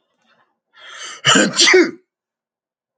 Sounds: Sneeze